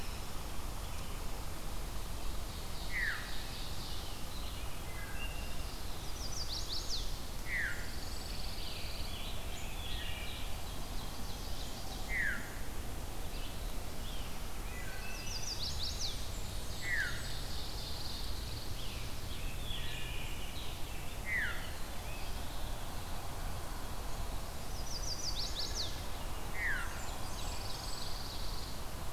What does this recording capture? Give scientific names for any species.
Seiurus aurocapilla, Catharus fuscescens, Hylocichla mustelina, Setophaga pensylvanica, Setophaga pinus, Piranga olivacea, Pheucticus ludovicianus, Setophaga fusca